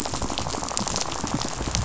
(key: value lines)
label: biophony, rattle
recorder: SoundTrap 500